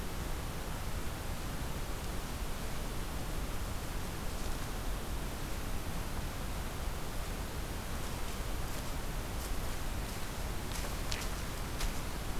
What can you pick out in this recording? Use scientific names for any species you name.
forest ambience